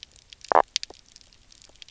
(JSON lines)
{"label": "biophony", "recorder": "SoundTrap 300"}